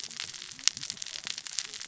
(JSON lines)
{"label": "biophony, cascading saw", "recorder": "SoundTrap 600 or HydroMoth"}